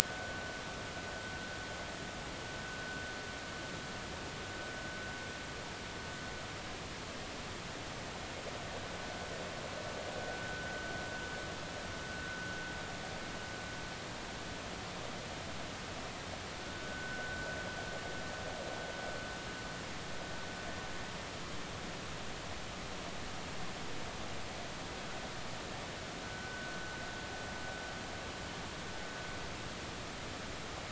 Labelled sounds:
0.0	0.4	vessel noise, 1.4 to 1.6 kHz
10.4	10.7	vessel noise, 1.4 to 1.5 kHz
16.6	17.5	vessel noise, 1.4 to 1.6 kHz
26.2	26.8	vessel noise, 1.4 to 1.6 kHz

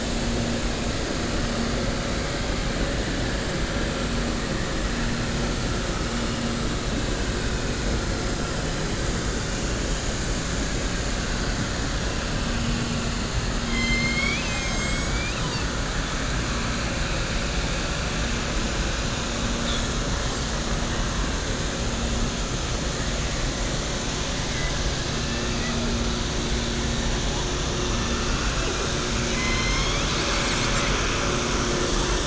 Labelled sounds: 25.2	25.8	killer whale, southern resident, 1.3 to 2.7 kHz
29.2	31.2	killer whale, southern resident, 1.0 to 5.4 kHz

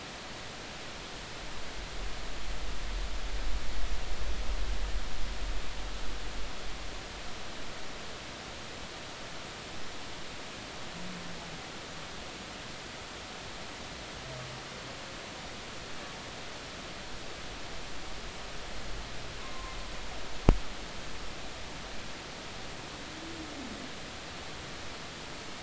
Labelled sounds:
19.4	19.8	humpback whale, 0.99 to 1.1 kHz

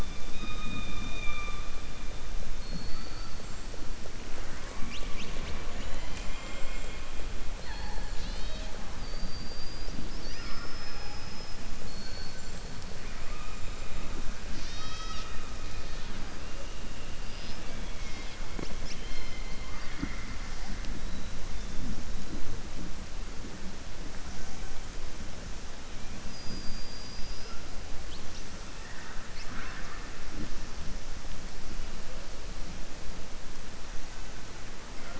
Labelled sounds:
8.9	10.0	killer whale, southern resident, 4.5 to 5.8 kHz
26.2	27.6	killer whale, southern resident, 4.1 to 5.9 kHz

